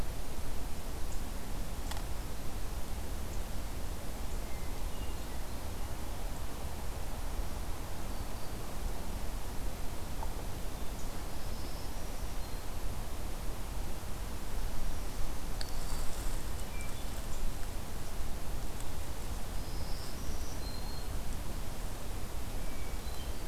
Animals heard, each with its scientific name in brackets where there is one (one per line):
Hermit Thrush (Catharus guttatus)
Black-throated Green Warbler (Setophaga virens)